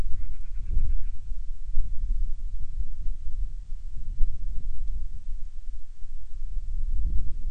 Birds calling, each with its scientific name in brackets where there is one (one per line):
Band-rumped Storm-Petrel (Hydrobates castro)